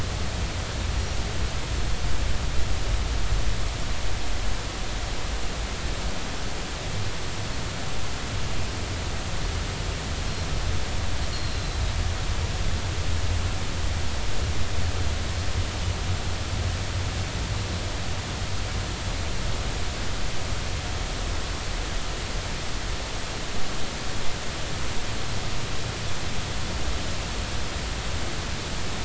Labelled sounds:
11.3	11.8	Pacific white-sided dolphin, 3.9 to 4.4 kHz

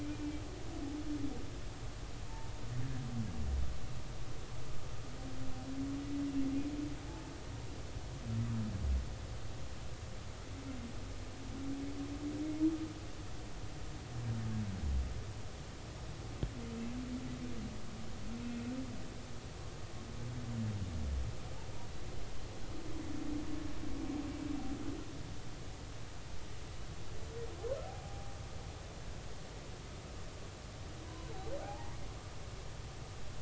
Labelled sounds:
0.0	0.4	humpback whale, 2.3 to 2.5 kHz
18.4	18.7	humpback whale, 2.5 to 2.7 kHz
27.8	28.3	humpback whale, 0.80 to 0.86 kHz
31.0	31.9	humpback whale, 0.80 to 1.1 kHz

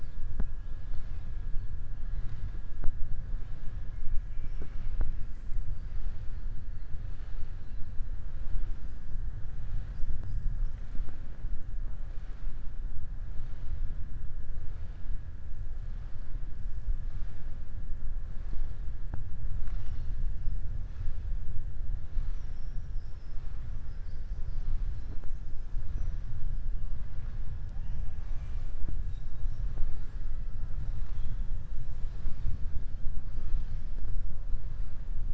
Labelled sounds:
4.3	4.9	killer whale, southern resident, 4.7 to 6.1 kHz

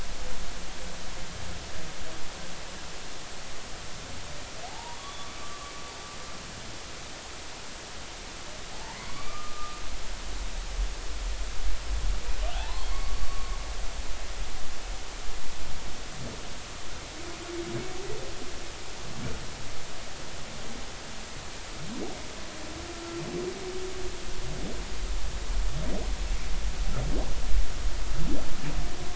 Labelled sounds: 4.7	5.7	humpback whale, 0.80 to 3.5 kHz
9.0	9.8	humpback whale, 0.93 to 2.4 kHz
12.5	13.6	humpback whale, 0.80 to 4.6 kHz
22.9	23.2	humpback whale, 1.3 to 1.4 kHz

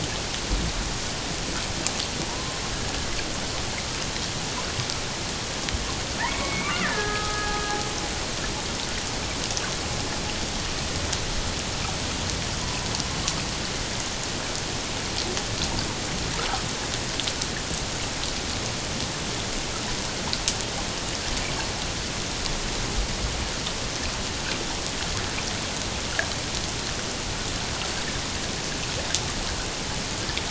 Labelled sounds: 2.3	2.6	killer whale, Bigg's (transient), 0.91 to 1.1 kHz
6.2	7.6	killer whale, Bigg's (transient), 1.2 to 2.5 kHz

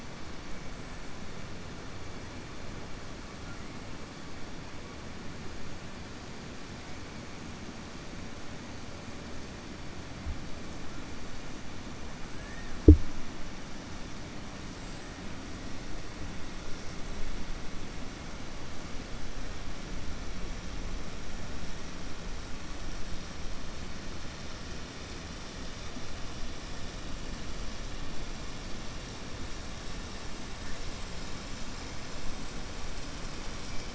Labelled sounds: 12.3	12.7	killer whale, southern resident, 1.2 to 1.9 kHz

